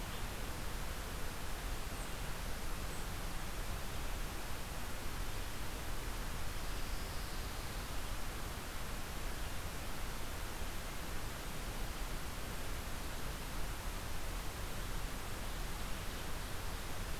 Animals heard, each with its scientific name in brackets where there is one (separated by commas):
Black-capped Chickadee (Poecile atricapillus), Pine Warbler (Setophaga pinus)